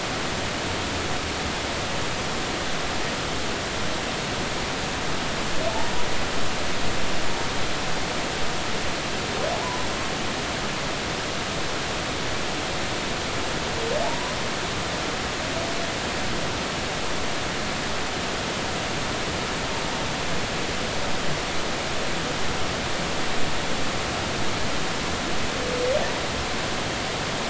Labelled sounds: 9.5	9.8	humpback whale, 0.83 to 1.1 kHz
14.0	14.3	humpback whale, 0.80 to 1.1 kHz

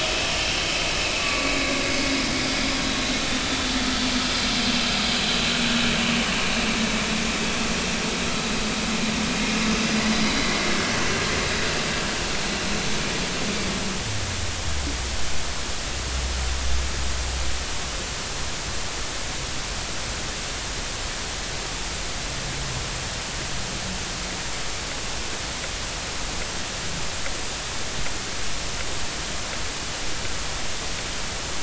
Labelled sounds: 0.0	0.5	vessel noise, 2.7 to 5.4 kHz
1.2	1.7	vessel noise, 1.1 to 2.3 kHz

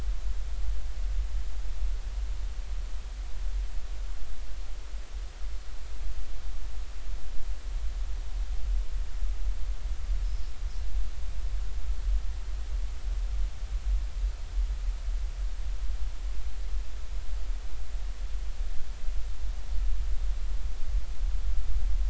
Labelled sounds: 10.2	10.5	Pacific white-sided dolphin, 5.0 to 5.3 kHz

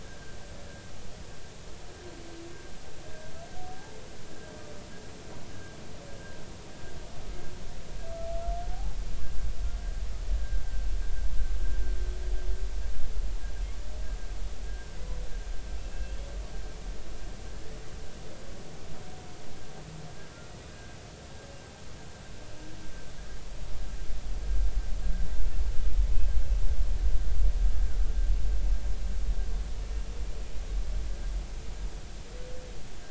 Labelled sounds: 3.1	4.0	humpback whale, 0.80 to 1.7 kHz
6.1	6.4	humpback whale, 1.5 to 1.7 kHz
8.7	9.0	humpback whale, 0.80 to 0.90 kHz
10.4	10.6	humpback whale, 1.5 to 1.7 kHz
15.8	16.2	humpback whale, 2.6 to 2.7 kHz
20.7	21.0	humpback whale, 1.5 to 1.7 kHz

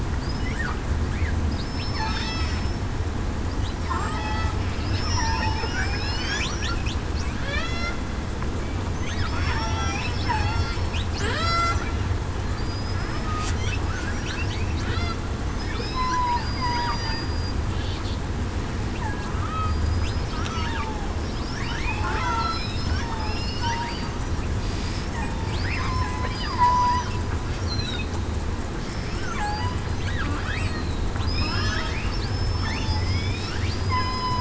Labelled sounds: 1.6	2.6	killer whale, southern resident, 5.2 to 5.3 kHz
3.9	4.2	killer whale, southern resident, 0.98 to 1.3 kHz
4.9	5.3	killer whale, southern resident, 5.2 to 5.4 kHz
5.6	6.4	killer whale, southern resident, 4.1 to 5.6 kHz
9.3	10.5	killer whale, southern resident, 0.77 to 5.9 kHz
11.2	11.8	killer whale, southern resident, 0.56 to 8.0 kHz
12.6	13.3	killer whale, southern resident, 4.6 to 5.3 kHz
15.7	16.1	killer whale, southern resident, 5.1 to 5.4 kHz
16.4	17.5	killer whale, southern resident, 0.91 to 4.9 kHz
19.4	21.1	killer whale, southern resident, 0.77 to 5.3 kHz
22.2	22.6	killer whale, southern resident, 1.3 to 3.4 kHz
23.2	23.7	killer whale, southern resident, 5.0 to 5.3 kHz
25.6	25.9	killer whale, southern resident, 5.0 to 5.2 kHz
26.5	27.0	killer whale, southern resident, 0.94 to 1.1 kHz
27.7	28.1	killer whale, southern resident, 3.6 to 4.4 kHz
28.8	29.2	killer whale, southern resident, 5.3 to 5.4 kHz
30.6	31.6	killer whale, southern resident, 3.8 to 5.4 kHz
32.3	33.4	killer whale, southern resident, 3.4 to 5.3 kHz
33.9	34.2	killer whale, southern resident, 1.9 to 2.1 kHz

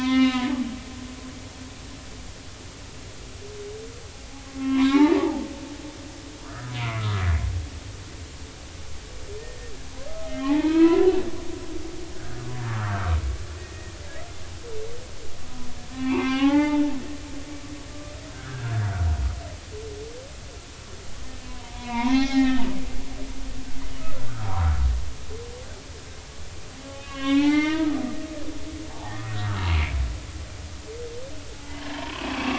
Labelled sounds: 1.2	1.4	humpback whale, 1.3 to 1.5 kHz
4.6	5.5	humpback whale, 0.80 to 4.2 kHz
6.5	7.2	humpback whale, 1.2 to 2.4 kHz
9.4	11.1	humpback whale, 0.80 to 2.8 kHz
12.1	13.9	humpback whale, 1.0 to 2.0 kHz
15.9	17.0	humpback whale, 0.80 to 3.9 kHz
18.3	18.9	humpback whale, 1.2 to 1.8 kHz
21.5	22.6	humpback whale, 0.80 to 5.8 kHz
24.0	24.9	humpback whale, 0.90 to 1.5 kHz
27.0	29.7	humpback whale, 0.80 to 5.9 kHz
31.5	31.8	humpback whale, 0.83 to 0.96 kHz

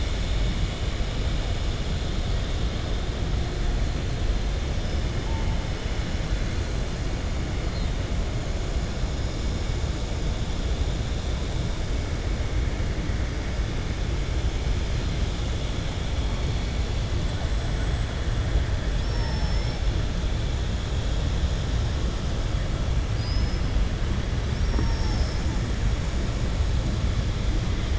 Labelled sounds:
18.9	19.8	killer whale, southern resident, 4.5 to 6.3 kHz
24.5	25.6	killer whale, southern resident, 4.7 to 7.4 kHz

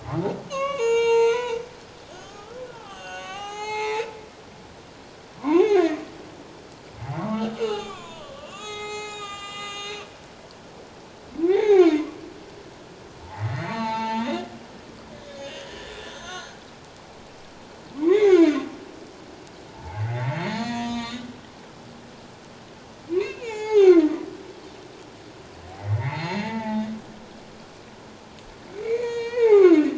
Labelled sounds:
0.5	4.1	humpback whale, 0.78 to 7.9 kHz
5.4	6.0	humpback whale, 0.78 to 6.8 kHz
7.0	10.0	humpback whale, 0.78 to 8.0 kHz
11.4	12.2	humpback whale, 0.78 to 3.8 kHz
13.3	14.5	humpback whale, 0.81 to 6.5 kHz
15.2	16.6	humpback whale, 0.97 to 6.5 kHz
18.0	18.5	humpback whale, 1.6 to 6.9 kHz
19.7	21.2	humpback whale, 0.81 to 7.4 kHz
23.2	24.3	humpback whale, 0.78 to 7.3 kHz
25.7	26.9	humpback whale, 0.78 to 6.8 kHz
28.7	29.7	humpback whale, 0.78 to 6.7 kHz

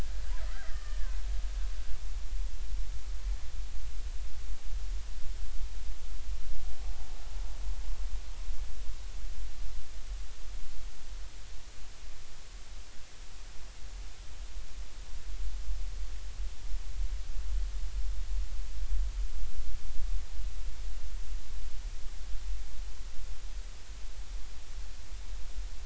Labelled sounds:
0.4	1.2	killer whale, Bigg's (transient), 1.1 to 2.0 kHz

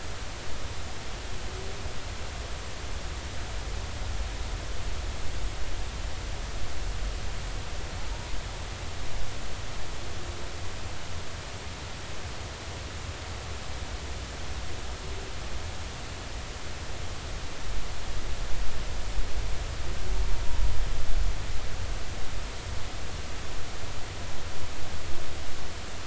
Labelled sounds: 8.1	8.4	humpback whale, 0.86 to 1.0 kHz

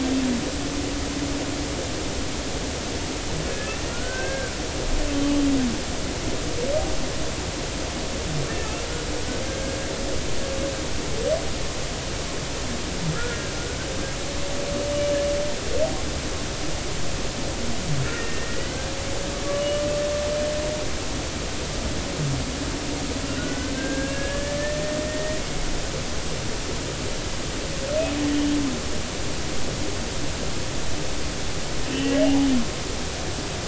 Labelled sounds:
3.5	4.6	humpback whale, 1.3 to 1.8 kHz
9.5	9.8	humpback whale, 1.5 to 1.7 kHz
13.1	13.5	humpback whale, 1.2 to 1.7 kHz
18.1	18.8	humpback whale, 1.3 to 2.1 kHz
19.5	19.8	humpback whale, 2.8 to 3.0 kHz
23.4	25.4	humpback whale, 1.4 to 1.9 kHz
31.9	32.2	humpback whale, 1.8 to 2.9 kHz

